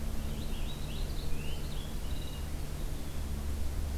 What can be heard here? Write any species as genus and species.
Haemorhous purpureus, Cyanocitta cristata